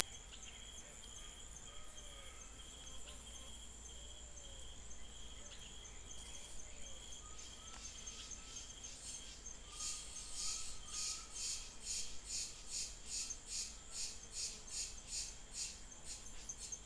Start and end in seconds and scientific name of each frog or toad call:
0.0	16.8	Adenomera diptyx
1.6	3.6	Physalaemus albonotatus